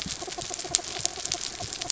{"label": "anthrophony, mechanical", "recorder": "SoundTrap 300"}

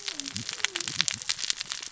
{"label": "biophony, cascading saw", "recorder": "SoundTrap 600 or HydroMoth"}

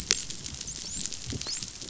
{"label": "biophony, dolphin", "recorder": "SoundTrap 500"}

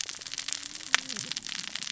{"label": "biophony, cascading saw", "recorder": "SoundTrap 600 or HydroMoth"}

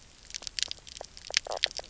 {"label": "biophony", "recorder": "SoundTrap 300"}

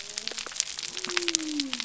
{"label": "biophony", "recorder": "SoundTrap 300"}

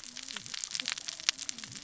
{"label": "biophony, cascading saw", "recorder": "SoundTrap 600 or HydroMoth"}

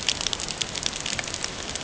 {"label": "ambient", "recorder": "HydroMoth"}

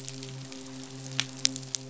{"label": "biophony, midshipman", "recorder": "SoundTrap 500"}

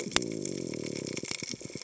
{"label": "biophony", "recorder": "HydroMoth"}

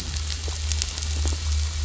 {"label": "anthrophony, boat engine", "recorder": "SoundTrap 500"}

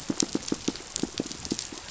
{"label": "biophony, pulse", "recorder": "SoundTrap 500"}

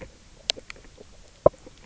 {"label": "biophony, knock croak", "recorder": "SoundTrap 300"}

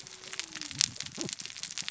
{"label": "biophony, cascading saw", "recorder": "SoundTrap 600 or HydroMoth"}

